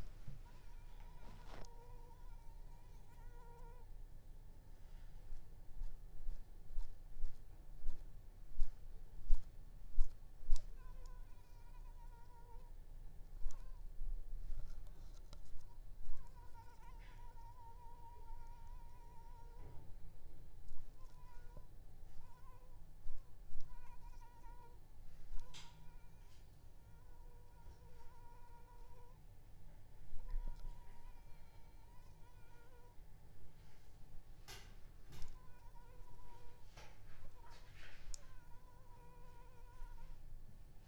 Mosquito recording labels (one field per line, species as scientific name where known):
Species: Anopheles arabiensis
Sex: female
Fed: unfed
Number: one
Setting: cup